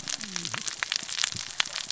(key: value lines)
label: biophony, cascading saw
recorder: SoundTrap 600 or HydroMoth